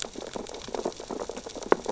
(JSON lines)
{"label": "biophony, sea urchins (Echinidae)", "recorder": "SoundTrap 600 or HydroMoth"}